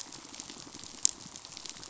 {"label": "biophony, pulse", "recorder": "SoundTrap 500"}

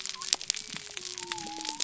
{"label": "biophony", "recorder": "SoundTrap 300"}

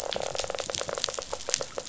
{"label": "biophony", "recorder": "SoundTrap 500"}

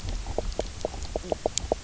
{"label": "biophony, knock croak", "recorder": "SoundTrap 300"}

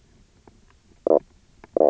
{"label": "biophony, knock croak", "recorder": "SoundTrap 300"}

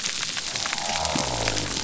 {"label": "biophony", "recorder": "SoundTrap 300"}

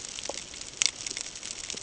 {"label": "ambient", "recorder": "HydroMoth"}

